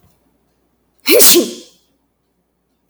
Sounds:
Sneeze